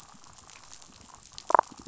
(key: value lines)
label: biophony, damselfish
recorder: SoundTrap 500